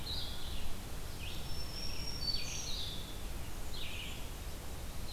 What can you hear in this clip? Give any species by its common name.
Blue-headed Vireo, Red-eyed Vireo, Black-throated Green Warbler, Blackburnian Warbler